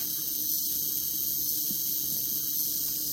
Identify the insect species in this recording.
Psaltoda claripennis